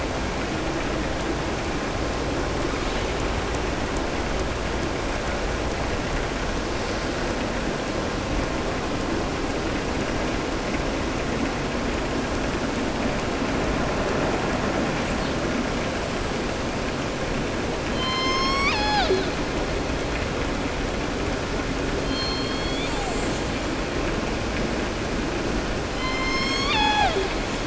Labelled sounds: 22.0	23.1	killer whale, southern resident, 0.79 to 4.6 kHz

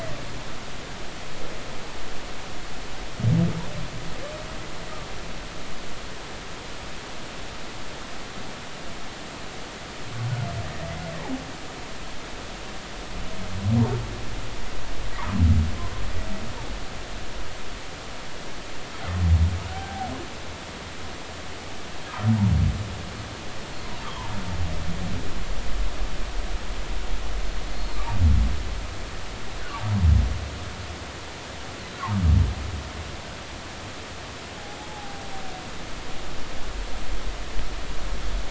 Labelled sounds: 18.9	19.2	humpback whale, 3.1 to 3.3 kHz
19.7	20.1	humpback whale, 0.80 to 0.83 kHz
24.0	24.3	humpback whale, 0.86 to 1.3 kHz
27.7	28.0	humpback whale, 4.1 to 4.4 kHz
34.9	35.3	humpback whale, 0.80 to 0.90 kHz

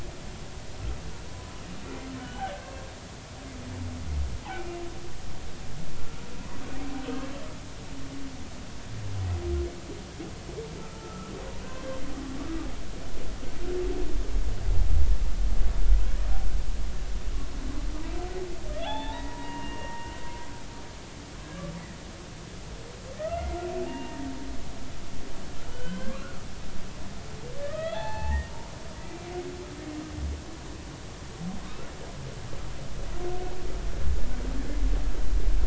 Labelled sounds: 1.3	2.8	humpback whale, 0.96 to 3.1 kHz
4.5	4.8	humpback whale, 2.2 to 2.5 kHz
11.0	12.0	humpback whale, 1.2 to 1.6 kHz
18.7	20.1	humpback whale, 0.80 to 3.9 kHz
23.2	24.3	humpback whale, 0.83 to 2.9 kHz
25.6	26.4	humpback whale, 1.0 to 3.2 kHz
27.6	28.5	humpback whale, 0.80 to 4.5 kHz
29.1	29.3	humpback whale, 2.3 to 2.4 kHz
31.6	31.9	humpback whale, 1.0 to 1.5 kHz

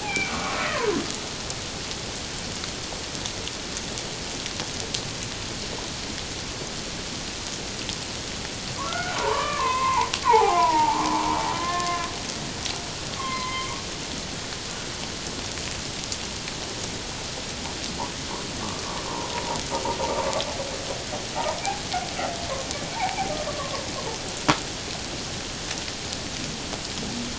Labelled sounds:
0.0	0.9	humpback whale, 0.91 to 2.6 kHz
8.8	12.1	humpback whale, 0.78 to 2.8 kHz
13.2	13.7	humpback whale, 0.97 to 2.2 kHz
23.5	23.8	humpback whale, 1.0 to 1.2 kHz

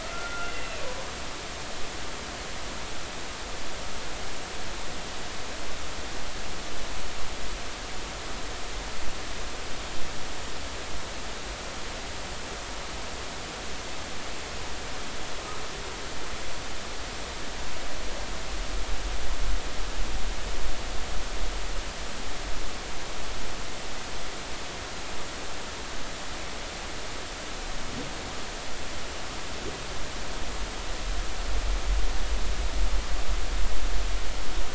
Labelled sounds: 0.0	0.8	humpback whale, 1.3 to 2.8 kHz

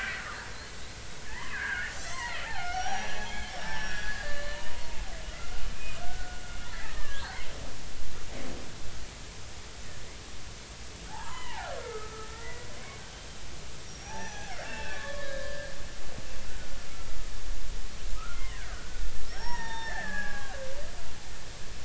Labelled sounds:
1.2	4.6	killer whale, Bigg's (transient), 0.80 to 7.9 kHz
5.3	6.4	killer whale, Bigg's (transient), 0.86 to 2.6 kHz
6.7	7.4	killer whale, Bigg's (transient), 1.1 to 2.1 kHz
11.1	12.7	killer whale, Bigg's (transient), 0.80 to 4.2 kHz
13.9	15.7	killer whale, Bigg's (transient), 0.80 to 6.0 kHz
16.5	17.2	killer whale, Bigg's (transient), 1.3 to 1.5 kHz
18.1	21.0	killer whale, Bigg's (transient), 0.80 to 5.7 kHz

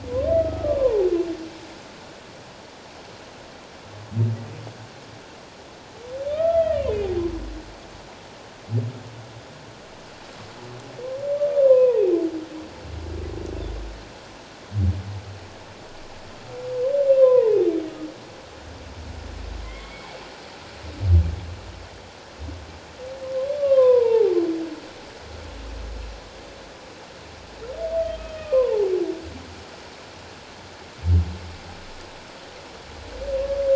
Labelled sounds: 6.3	7.1	humpback whale, 1.2 to 3.4 kHz
11.6	12.0	humpback whale, 0.84 to 1.1 kHz
17.2	17.6	humpback whale, 0.84 to 1.1 kHz
19.6	20.1	humpback whale, 1.9 to 2.4 kHz
23.6	24.4	humpback whale, 0.78 to 3.8 kHz
28.3	28.9	humpback whale, 0.78 to 3.2 kHz

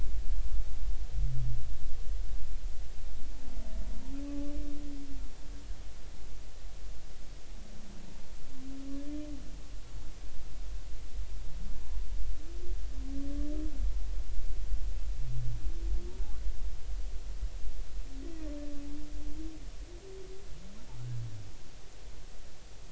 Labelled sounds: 4.3	4.5	humpback whale, 1.1 to 1.2 kHz

